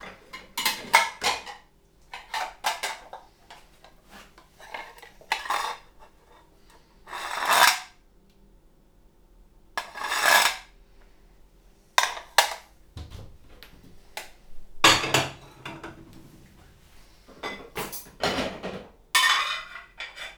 Is this noise being made by more than one person?
no